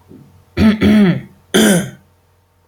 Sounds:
Throat clearing